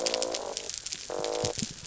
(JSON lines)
{"label": "biophony", "recorder": "SoundTrap 300"}